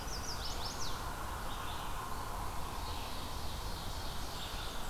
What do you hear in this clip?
Chestnut-sided Warbler, Red-eyed Vireo, Ovenbird, Blackburnian Warbler